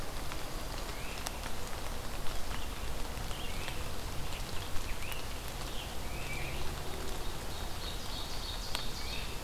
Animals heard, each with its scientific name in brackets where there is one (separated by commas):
Scarlet Tanager (Piranga olivacea), Ovenbird (Seiurus aurocapilla), Great Crested Flycatcher (Myiarchus crinitus)